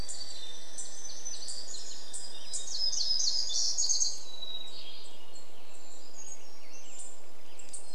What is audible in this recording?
Hermit Thrush song, Douglas squirrel rattle, warbler song, unidentified bird chip note, Western Tanager song